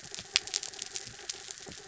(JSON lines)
{"label": "anthrophony, mechanical", "recorder": "SoundTrap 300"}